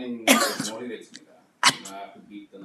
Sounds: Sneeze